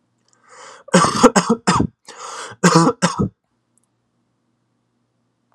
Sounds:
Cough